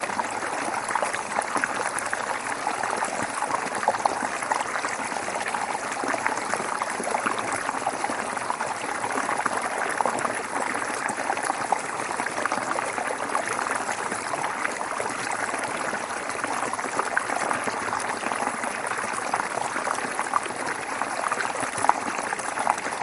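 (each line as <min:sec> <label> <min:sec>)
0:00.0 A creek flows between rocks. 0:23.0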